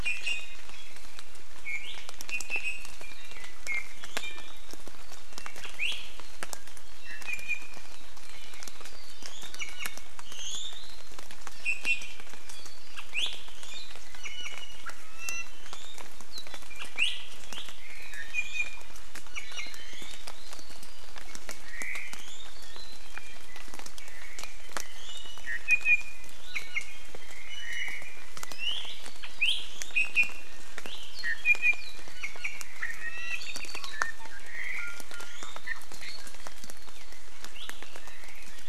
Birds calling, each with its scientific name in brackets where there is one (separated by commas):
Iiwi (Drepanis coccinea), Apapane (Himatione sanguinea), Omao (Myadestes obscurus)